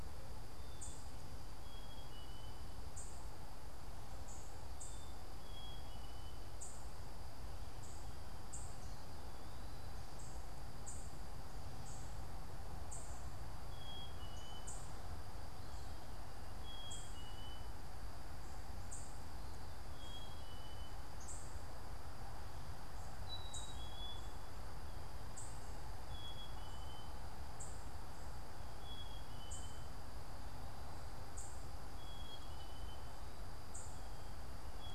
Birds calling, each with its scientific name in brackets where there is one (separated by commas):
Black-capped Chickadee (Poecile atricapillus), unidentified bird